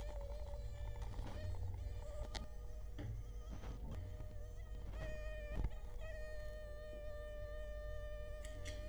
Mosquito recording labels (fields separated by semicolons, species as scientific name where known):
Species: Culex quinquefasciatus; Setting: cup